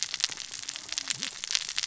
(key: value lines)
label: biophony, cascading saw
recorder: SoundTrap 600 or HydroMoth